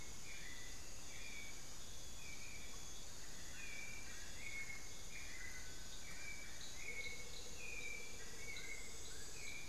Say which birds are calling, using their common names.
Dull-capped Attila, White-necked Thrush, Amazonian Barred-Woodcreeper, Amazonian Motmot